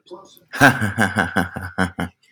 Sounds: Laughter